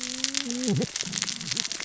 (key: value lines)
label: biophony, cascading saw
recorder: SoundTrap 600 or HydroMoth